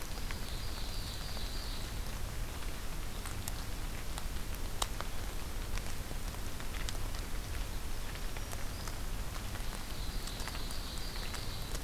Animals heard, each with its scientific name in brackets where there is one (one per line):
Black-throated Green Warbler (Setophaga virens)
Ovenbird (Seiurus aurocapilla)